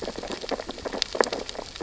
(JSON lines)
{"label": "biophony, sea urchins (Echinidae)", "recorder": "SoundTrap 600 or HydroMoth"}